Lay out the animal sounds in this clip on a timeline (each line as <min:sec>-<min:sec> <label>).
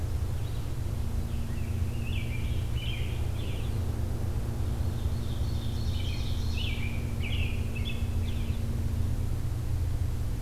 0:01.1-0:03.6 American Robin (Turdus migratorius)
0:04.7-0:06.7 Ovenbird (Seiurus aurocapilla)
0:05.9-0:08.7 American Robin (Turdus migratorius)